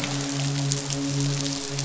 {"label": "biophony, midshipman", "recorder": "SoundTrap 500"}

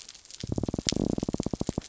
{"label": "biophony", "recorder": "SoundTrap 300"}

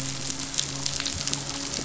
{"label": "biophony, midshipman", "recorder": "SoundTrap 500"}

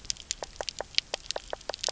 {"label": "biophony, knock croak", "recorder": "SoundTrap 300"}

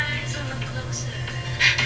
{"label": "anthrophony, boat engine", "recorder": "SoundTrap 300"}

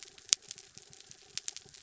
{"label": "anthrophony, mechanical", "recorder": "SoundTrap 300"}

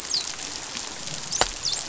{"label": "biophony, dolphin", "recorder": "SoundTrap 500"}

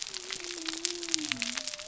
{"label": "biophony", "recorder": "SoundTrap 300"}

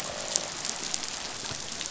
{"label": "biophony, croak", "recorder": "SoundTrap 500"}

